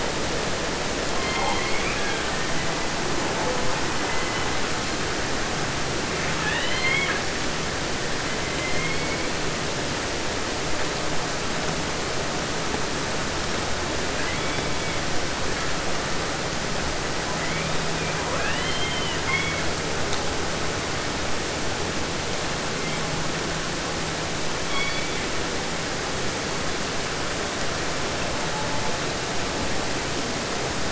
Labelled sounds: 1.1	2.6	killer whale, southern resident, J pod, call S01, 0.50 to 5.6 kHz
3.2	4.7	killer whale, 0.23 to 4.1 kHz
6.3	7.3	killer whale, southern resident, 0.50 to 4.6 kHz
8.2	9.3	killer whale, southern resident, 1.6 to 4.9 kHz
14.1	15.1	killer whale, 0.90 to 5.6 kHz
17.2	19.7	killer whale, southern resident, 0.50 to 5.3 kHz
22.7	23.1	killer whale, 1.8 to 3.7 kHz
24.6	25.6	killer whale, southern resident, 0.50 to 6.1 kHz
28.2	29.1	killer whale, southern resident, J pod, call S04, 0.06 to 1.4 kHz

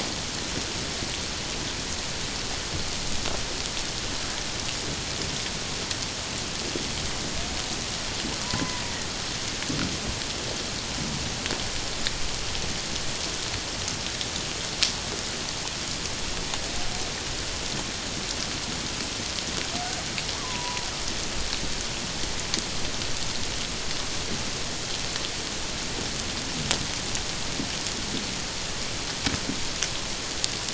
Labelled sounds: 8.4	8.8	killer whale, Bigg's (transient), 0.91 to 1.1 kHz
20.3	20.9	killer whale, Bigg's (transient), 0.91 to 1.2 kHz

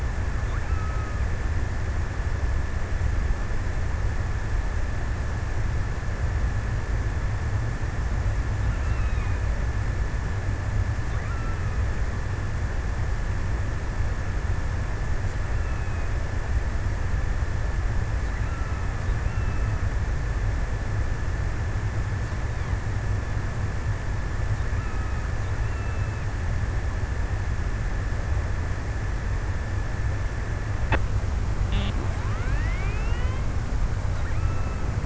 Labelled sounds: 0.4	2.4	killer whale, offshore, 0.94 to 3.2 kHz
8.2	9.9	killer whale, offshore, 0.86 to 2.9 kHz
10.9	12.7	killer whale, offshore, 0.91 to 3.4 kHz
15.3	16.5	killer whale, offshore, 0.76 to 3.3 kHz
18.3	21.2	killer whale, offshore, 0.71 to 3.3 kHz
24.3	27.4	killer whale, offshore, 0.88 to 3.4 kHz

